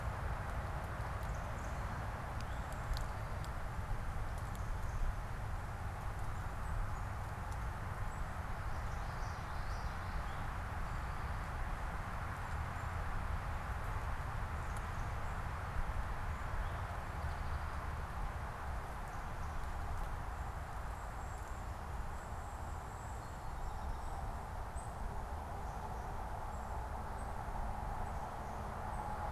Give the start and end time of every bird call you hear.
[1.02, 5.22] Black-capped Chickadee (Poecile atricapillus)
[2.32, 3.72] Eastern Towhee (Pipilo erythrophthalmus)
[8.62, 10.52] Common Yellowthroat (Geothlypis trichas)
[16.22, 18.12] Eastern Towhee (Pipilo erythrophthalmus)
[20.62, 29.32] unidentified bird

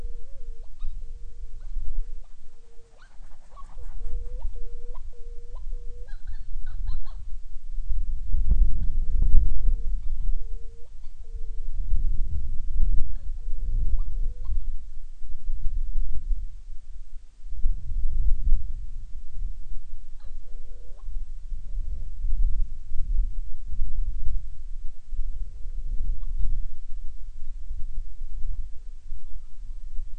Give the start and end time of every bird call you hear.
[0.00, 7.40] Hawaiian Petrel (Pterodroma sandwichensis)
[8.50, 11.80] Hawaiian Petrel (Pterodroma sandwichensis)
[13.00, 14.70] Hawaiian Petrel (Pterodroma sandwichensis)
[20.00, 22.20] Hawaiian Petrel (Pterodroma sandwichensis)
[24.80, 26.60] Hawaiian Petrel (Pterodroma sandwichensis)
[27.50, 29.10] Hawaiian Petrel (Pterodroma sandwichensis)

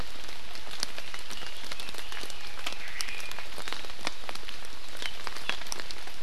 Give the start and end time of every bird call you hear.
[1.10, 2.70] Red-billed Leiothrix (Leiothrix lutea)
[2.80, 3.40] Omao (Myadestes obscurus)

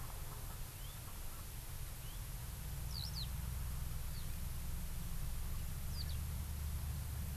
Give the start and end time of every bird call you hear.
[0.71, 1.01] Hawaii Amakihi (Chlorodrepanis virens)
[2.01, 2.21] Hawaii Amakihi (Chlorodrepanis virens)
[2.91, 3.31] Eurasian Skylark (Alauda arvensis)
[4.11, 4.31] Eurasian Skylark (Alauda arvensis)
[5.91, 6.11] Eurasian Skylark (Alauda arvensis)

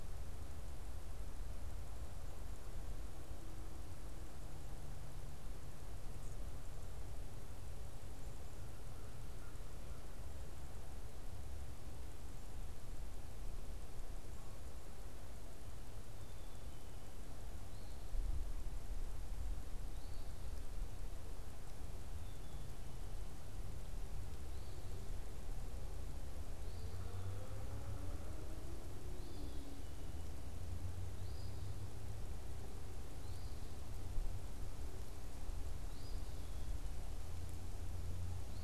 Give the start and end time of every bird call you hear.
[8.47, 10.38] American Crow (Corvus brachyrhynchos)
[15.97, 17.07] Black-capped Chickadee (Poecile atricapillus)
[19.77, 32.08] Eastern Phoebe (Sayornis phoebe)
[26.77, 28.88] Yellow-bellied Sapsucker (Sphyrapicus varius)
[32.88, 38.63] Eastern Phoebe (Sayornis phoebe)

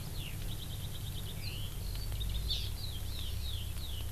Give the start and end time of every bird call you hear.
[0.00, 4.12] Eurasian Skylark (Alauda arvensis)
[2.50, 2.70] Hawaii Amakihi (Chlorodrepanis virens)

